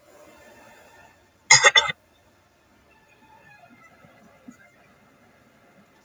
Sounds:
Throat clearing